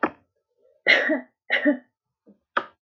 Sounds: Cough